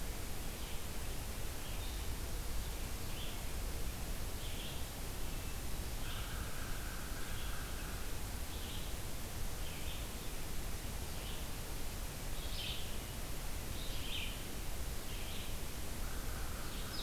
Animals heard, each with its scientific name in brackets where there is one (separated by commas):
American Crow (Corvus brachyrhynchos), Red-eyed Vireo (Vireo olivaceus)